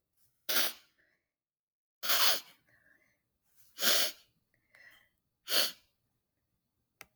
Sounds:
Sniff